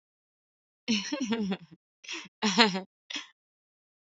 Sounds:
Laughter